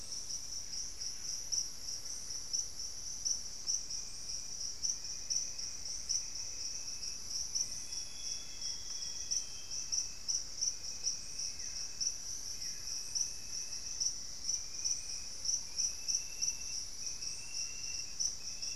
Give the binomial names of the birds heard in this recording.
Cantorchilus leucotis, Campylorhynchus turdinus, Formicarius analis, Cyanoloxia rothschildii, Xiphorhynchus guttatus